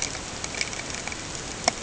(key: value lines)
label: ambient
recorder: HydroMoth